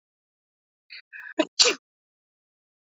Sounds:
Sneeze